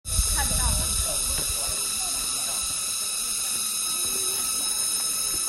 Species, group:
Macrosemia kareisana, Cicadidae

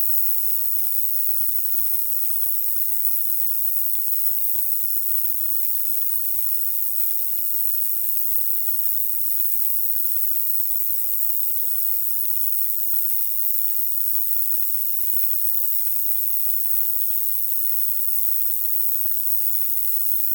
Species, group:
Roeseliana roeselii, Orthoptera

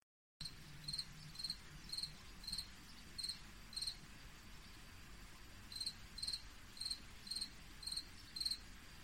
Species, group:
Gryllus campestris, Orthoptera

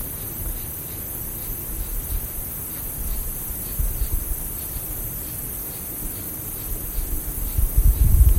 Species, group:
Pterophylla camellifolia, Orthoptera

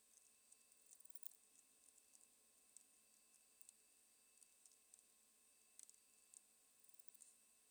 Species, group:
Poecilimon paros, Orthoptera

